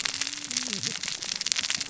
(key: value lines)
label: biophony, cascading saw
recorder: SoundTrap 600 or HydroMoth